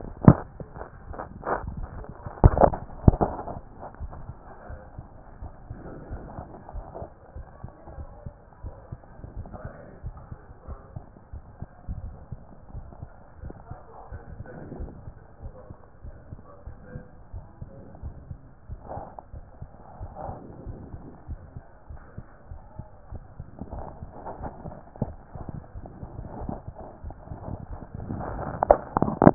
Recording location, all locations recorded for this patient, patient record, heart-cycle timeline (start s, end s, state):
aortic valve (AV)
aortic valve (AV)+pulmonary valve (PV)+tricuspid valve (TV)+mitral valve (MV)
#Age: Child
#Sex: Male
#Height: 148.0 cm
#Weight: 54.7 kg
#Pregnancy status: False
#Murmur: Absent
#Murmur locations: nan
#Most audible location: nan
#Systolic murmur timing: nan
#Systolic murmur shape: nan
#Systolic murmur grading: nan
#Systolic murmur pitch: nan
#Systolic murmur quality: nan
#Diastolic murmur timing: nan
#Diastolic murmur shape: nan
#Diastolic murmur grading: nan
#Diastolic murmur pitch: nan
#Diastolic murmur quality: nan
#Outcome: Abnormal
#Campaign: 2014 screening campaign
0.00	4.12	unannotated
4.12	4.26	systole
4.26	4.36	S2
4.36	4.70	diastole
4.70	4.80	S1
4.80	4.96	systole
4.96	5.06	S2
5.06	5.40	diastole
5.40	5.52	S1
5.52	5.70	systole
5.70	5.78	S2
5.78	6.10	diastole
6.10	6.22	S1
6.22	6.36	systole
6.36	6.46	S2
6.46	6.74	diastole
6.74	6.86	S1
6.86	7.00	systole
7.00	7.10	S2
7.10	7.36	diastole
7.36	7.46	S1
7.46	7.62	systole
7.62	7.72	S2
7.72	7.96	diastole
7.96	8.08	S1
8.08	8.24	systole
8.24	8.34	S2
8.34	8.64	diastole
8.64	8.74	S1
8.74	8.90	systole
8.90	9.00	S2
9.00	9.36	diastole
9.36	9.48	S1
9.48	9.64	systole
9.64	9.72	S2
9.72	10.04	diastole
10.04	10.16	S1
10.16	10.30	systole
10.30	10.40	S2
10.40	10.68	diastole
10.68	10.78	S1
10.78	10.94	systole
10.94	11.04	S2
11.04	11.34	diastole
11.34	11.42	S1
11.42	11.60	systole
11.60	11.66	S2
11.66	11.92	diastole
11.92	12.12	S1
12.12	12.30	systole
12.30	12.40	S2
12.40	12.74	diastole
12.74	12.86	S1
12.86	13.00	systole
13.00	13.10	S2
13.10	13.42	diastole
13.42	13.54	S1
13.54	13.70	systole
13.70	13.80	S2
13.80	14.12	diastole
14.12	14.22	S1
14.22	14.32	systole
14.32	14.44	S2
14.44	14.78	diastole
14.78	14.90	S1
14.90	15.06	systole
15.06	15.14	S2
15.14	15.42	diastole
15.42	15.54	S1
15.54	15.70	systole
15.70	15.78	S2
15.78	16.04	diastole
16.04	16.14	S1
16.14	16.30	systole
16.30	16.40	S2
16.40	16.66	diastole
16.66	16.76	S1
16.76	16.92	systole
16.92	17.04	S2
17.04	17.34	diastole
17.34	17.44	S1
17.44	17.60	systole
17.60	17.70	S2
17.70	18.02	diastole
18.02	18.14	S1
18.14	18.28	systole
18.28	18.38	S2
18.38	18.70	diastole
18.70	18.80	S1
18.80	18.96	systole
18.96	19.06	S2
19.06	19.34	diastole
19.34	19.44	S1
19.44	19.60	systole
19.60	19.68	S2
19.68	20.00	diastole
20.00	20.12	S1
20.12	20.26	systole
20.26	20.38	S2
20.38	20.66	diastole
20.66	20.78	S1
20.78	20.92	systole
20.92	21.02	S2
21.02	21.28	diastole
21.28	21.40	S1
21.40	21.54	systole
21.54	21.64	S2
21.64	21.90	diastole
21.90	22.00	S1
22.00	22.16	systole
22.16	22.26	S2
22.26	22.50	diastole
22.50	22.60	S1
22.60	22.78	systole
22.78	22.88	S2
22.88	23.12	diastole
23.12	23.22	S1
23.22	23.38	systole
23.38	23.46	S2
23.46	23.74	diastole
23.74	23.86	S1
23.86	24.00	systole
24.00	24.10	S2
24.10	24.40	diastole
24.40	24.52	S1
24.52	24.64	systole
24.64	24.76	S2
24.76	25.00	diastole
25.00	25.04	S1
25.04	29.34	unannotated